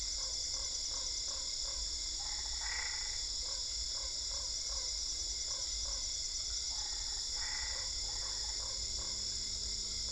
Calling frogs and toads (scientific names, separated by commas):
Boana lundii, Boana albopunctata